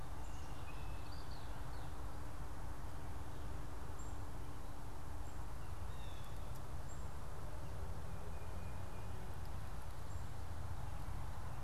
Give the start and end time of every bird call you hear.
[0.41, 2.01] Red-winged Blackbird (Agelaius phoeniceus)
[3.91, 4.21] Black-capped Chickadee (Poecile atricapillus)
[5.81, 6.41] Blue Jay (Cyanocitta cristata)
[6.71, 7.01] Black-capped Chickadee (Poecile atricapillus)
[8.11, 9.31] Tufted Titmouse (Baeolophus bicolor)

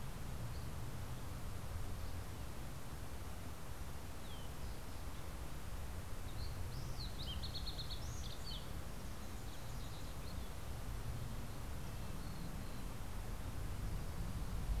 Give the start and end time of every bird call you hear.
[0.00, 1.40] Dusky Flycatcher (Empidonax oberholseri)
[6.00, 9.00] Fox Sparrow (Passerella iliaca)
[10.30, 14.80] Red-breasted Nuthatch (Sitta canadensis)

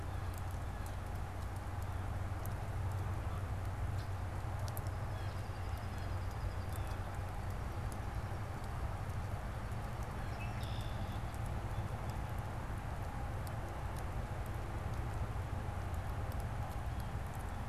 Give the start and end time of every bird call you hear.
[4.44, 10.14] unidentified bird
[5.04, 7.24] Blue Jay (Cyanocitta cristata)
[10.14, 11.24] Red-winged Blackbird (Agelaius phoeniceus)

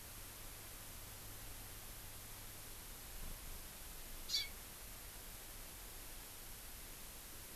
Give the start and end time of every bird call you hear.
[4.27, 4.47] Hawaii Amakihi (Chlorodrepanis virens)

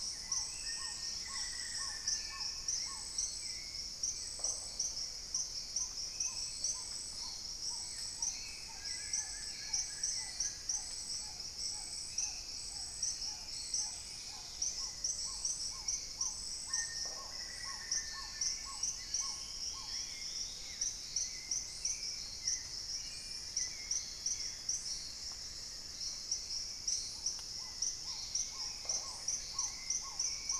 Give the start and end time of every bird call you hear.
[0.00, 12.81] Spot-winged Antshrike (Pygiptila stellaris)
[0.00, 20.11] Black-tailed Trogon (Trogon melanurus)
[0.00, 30.59] Hauxwell's Thrush (Turdus hauxwelli)
[0.00, 30.59] Paradise Tanager (Tangara chilensis)
[0.61, 2.61] Black-faced Antthrush (Formicarius analis)
[1.01, 1.91] Dusky-capped Greenlet (Pachysylvia hypoxantha)
[4.31, 4.91] Red-necked Woodpecker (Campephilus rubricollis)
[6.11, 7.31] Plumbeous Pigeon (Patagioenas plumbea)
[8.51, 10.81] Wing-barred Piprites (Piprites chloris)
[13.91, 14.91] Dusky-capped Greenlet (Pachysylvia hypoxantha)
[16.51, 18.61] Black-faced Antthrush (Formicarius analis)
[16.81, 17.51] Red-necked Woodpecker (Campephilus rubricollis)
[18.01, 21.71] Dusky-throated Antshrike (Thamnomanes ardesiacus)
[27.11, 30.59] Black-tailed Trogon (Trogon melanurus)
[27.81, 28.81] Dusky-capped Greenlet (Pachysylvia hypoxantha)
[28.71, 29.31] Red-necked Woodpecker (Campephilus rubricollis)

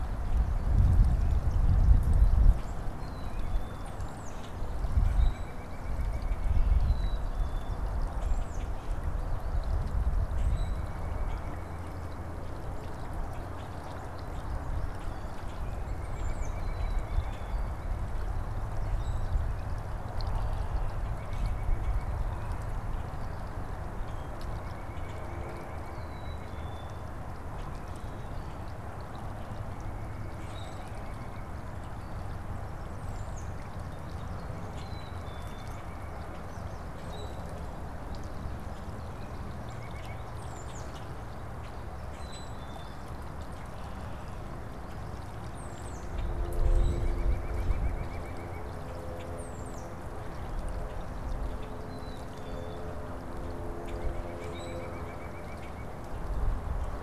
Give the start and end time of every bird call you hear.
[2.90, 3.90] Black-capped Chickadee (Poecile atricapillus)
[3.60, 4.50] Tufted Titmouse (Baeolophus bicolor)
[4.30, 4.60] Common Grackle (Quiscalus quiscula)
[4.80, 7.20] White-breasted Nuthatch (Sitta carolinensis)
[5.10, 5.60] Common Grackle (Quiscalus quiscula)
[6.70, 7.90] Black-capped Chickadee (Poecile atricapillus)
[8.10, 8.80] Tufted Titmouse (Baeolophus bicolor)
[10.30, 10.80] Common Grackle (Quiscalus quiscula)
[10.40, 12.80] White-breasted Nuthatch (Sitta carolinensis)
[11.20, 11.50] Common Grackle (Quiscalus quiscula)
[13.40, 14.60] Common Grackle (Quiscalus quiscula)
[15.60, 17.90] White-breasted Nuthatch (Sitta carolinensis)
[15.90, 16.50] Tufted Titmouse (Baeolophus bicolor)
[16.60, 17.60] Black-capped Chickadee (Poecile atricapillus)
[18.90, 19.60] Common Grackle (Quiscalus quiscula)
[21.00, 22.10] White-breasted Nuthatch (Sitta carolinensis)
[23.80, 24.40] Common Grackle (Quiscalus quiscula)
[24.50, 26.20] White-breasted Nuthatch (Sitta carolinensis)
[25.80, 27.00] Black-capped Chickadee (Poecile atricapillus)
[29.50, 31.60] White-breasted Nuthatch (Sitta carolinensis)
[30.30, 31.00] Common Grackle (Quiscalus quiscula)
[32.80, 33.70] Tufted Titmouse (Baeolophus bicolor)
[34.40, 36.60] White-breasted Nuthatch (Sitta carolinensis)
[34.70, 36.00] Black-capped Chickadee (Poecile atricapillus)
[37.00, 37.50] Common Grackle (Quiscalus quiscula)
[39.60, 40.30] White-breasted Nuthatch (Sitta carolinensis)
[40.30, 40.90] Tufted Titmouse (Baeolophus bicolor)
[40.50, 42.60] Common Grackle (Quiscalus quiscula)
[42.10, 43.00] Black-capped Chickadee (Poecile atricapillus)
[45.50, 46.10] Tufted Titmouse (Baeolophus bicolor)
[46.50, 47.20] Common Grackle (Quiscalus quiscula)
[46.60, 48.80] White-breasted Nuthatch (Sitta carolinensis)
[48.70, 49.30] Common Grackle (Quiscalus quiscula)
[49.20, 50.20] Tufted Titmouse (Baeolophus bicolor)
[51.70, 52.90] Black-capped Chickadee (Poecile atricapillus)
[53.80, 56.10] White-breasted Nuthatch (Sitta carolinensis)
[54.50, 55.00] Common Grackle (Quiscalus quiscula)

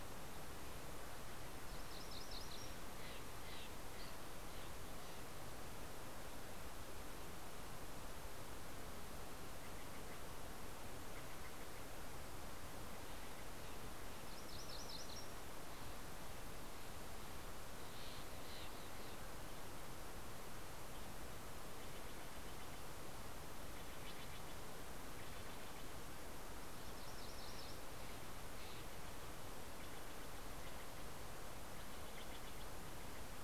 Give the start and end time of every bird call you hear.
[1.29, 2.90] MacGillivray's Warbler (Geothlypis tolmiei)
[2.69, 5.59] Steller's Jay (Cyanocitta stelleri)
[14.29, 15.79] MacGillivray's Warbler (Geothlypis tolmiei)
[17.39, 26.09] Steller's Jay (Cyanocitta stelleri)
[26.50, 28.20] MacGillivray's Warbler (Geothlypis tolmiei)
[28.39, 33.30] Steller's Jay (Cyanocitta stelleri)

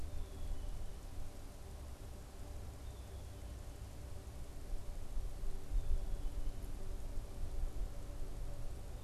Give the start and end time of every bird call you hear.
[0.00, 9.03] Black-capped Chickadee (Poecile atricapillus)

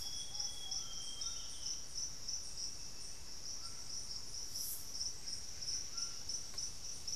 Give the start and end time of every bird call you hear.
[0.00, 1.07] Ruddy Pigeon (Patagioenas subvinacea)
[0.00, 1.87] Amazonian Grosbeak (Cyanoloxia rothschildii)
[0.00, 7.16] Buff-breasted Wren (Cantorchilus leucotis)
[0.00, 7.16] White-throated Toucan (Ramphastos tucanus)

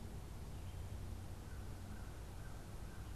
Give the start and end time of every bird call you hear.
[1.34, 3.14] American Crow (Corvus brachyrhynchos)

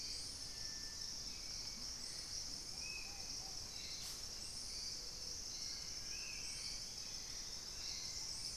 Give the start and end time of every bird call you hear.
[0.00, 1.84] Dusky-capped Greenlet (Pachysylvia hypoxantha)
[0.00, 8.56] Hauxwell's Thrush (Turdus hauxwelli)
[0.00, 8.56] Ruddy Pigeon (Patagioenas subvinacea)
[2.54, 8.56] Spot-winged Antshrike (Pygiptila stellaris)
[5.34, 8.34] Dusky-throated Antshrike (Thamnomanes ardesiacus)
[6.14, 8.56] Thrush-like Wren (Campylorhynchus turdinus)

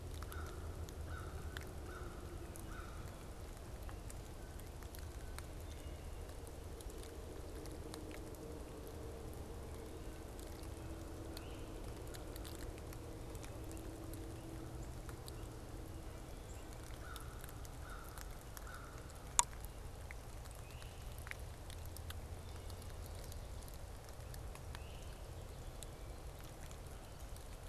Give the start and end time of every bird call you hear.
[0.00, 3.50] American Crow (Corvus brachyrhynchos)
[4.10, 5.50] Blue Jay (Cyanocitta cristata)
[11.10, 11.80] Great Crested Flycatcher (Myiarchus crinitus)
[16.70, 19.40] American Crow (Corvus brachyrhynchos)
[20.50, 21.20] Great Crested Flycatcher (Myiarchus crinitus)
[24.60, 25.30] Great Crested Flycatcher (Myiarchus crinitus)

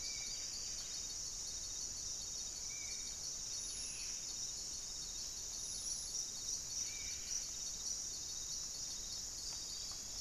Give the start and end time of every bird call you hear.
[0.00, 7.18] Spot-winged Antshrike (Pygiptila stellaris)
[0.00, 10.21] Buff-breasted Wren (Cantorchilus leucotis)
[3.58, 4.28] Black-spotted Bare-eye (Phlegopsis nigromaculata)

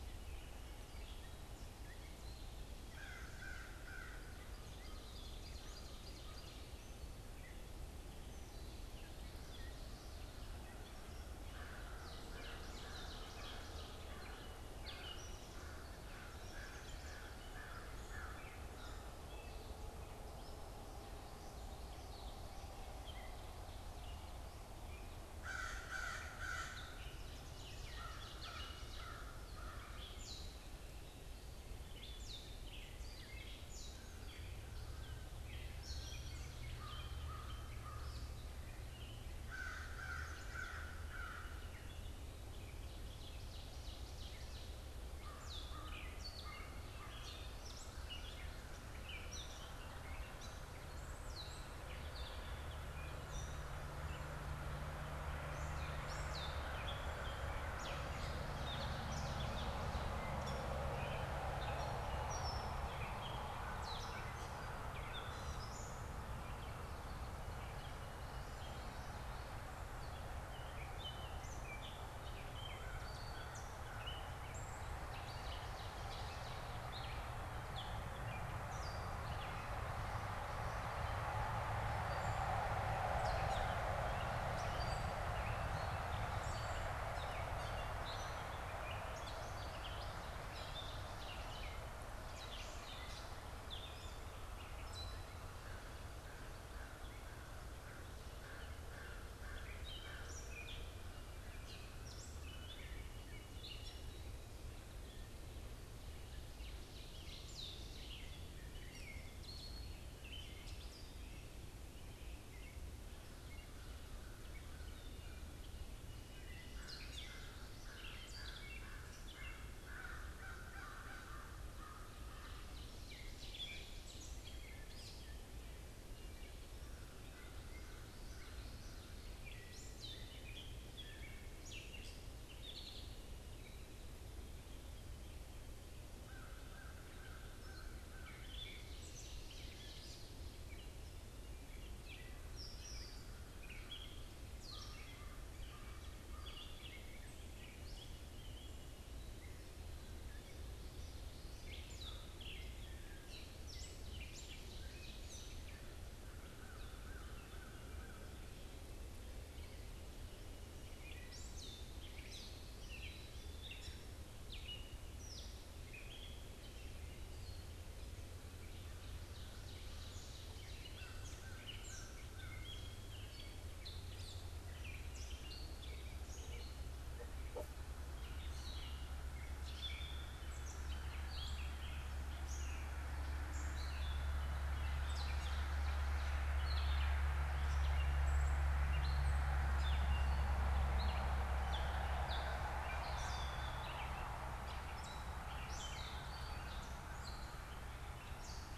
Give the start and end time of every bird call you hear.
[2.80, 4.40] American Crow (Corvus brachyrhynchos)
[4.40, 6.70] Ovenbird (Seiurus aurocapilla)
[11.30, 19.30] American Crow (Corvus brachyrhynchos)
[11.90, 17.70] Gray Catbird (Dumetella carolinensis)
[12.00, 14.20] Ovenbird (Seiurus aurocapilla)
[19.10, 25.10] Gray Catbird (Dumetella carolinensis)
[25.30, 30.00] American Crow (Corvus brachyrhynchos)
[30.10, 95.40] Gray Catbird (Dumetella carolinensis)
[36.60, 38.30] American Crow (Corvus brachyrhynchos)
[39.30, 41.80] American Crow (Corvus brachyrhynchos)
[43.30, 45.20] Ovenbird (Seiurus aurocapilla)
[45.10, 47.70] American Crow (Corvus brachyrhynchos)
[74.90, 76.90] Ovenbird (Seiurus aurocapilla)
[95.50, 100.60] American Crow (Corvus brachyrhynchos)
[99.60, 133.20] Gray Catbird (Dumetella carolinensis)
[106.40, 108.40] Ovenbird (Seiurus aurocapilla)
[116.50, 122.80] American Crow (Corvus brachyrhynchos)
[122.30, 124.70] Ovenbird (Seiurus aurocapilla)
[136.20, 138.40] American Crow (Corvus brachyrhynchos)
[138.10, 148.50] Gray Catbird (Dumetella carolinensis)
[138.60, 140.50] Ovenbird (Seiurus aurocapilla)
[144.60, 146.80] American Crow (Corvus brachyrhynchos)
[151.50, 198.77] Gray Catbird (Dumetella carolinensis)
[154.10, 156.10] Ovenbird (Seiurus aurocapilla)
[156.40, 158.40] American Crow (Corvus brachyrhynchos)
[162.70, 163.90] Black-capped Chickadee (Poecile atricapillus)
[168.50, 170.90] Ovenbird (Seiurus aurocapilla)
[170.80, 172.90] American Crow (Corvus brachyrhynchos)

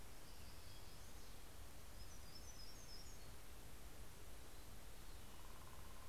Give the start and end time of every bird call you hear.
[0.26, 3.56] Hermit Warbler (Setophaga occidentalis)

